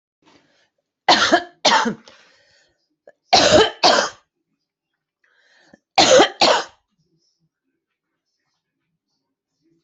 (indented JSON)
{
  "expert_labels": [
    {
      "quality": "good",
      "cough_type": "dry",
      "dyspnea": false,
      "wheezing": false,
      "stridor": false,
      "choking": false,
      "congestion": false,
      "nothing": true,
      "diagnosis": "COVID-19",
      "severity": "mild"
    }
  ],
  "age": 42,
  "gender": "female",
  "respiratory_condition": false,
  "fever_muscle_pain": true,
  "status": "symptomatic"
}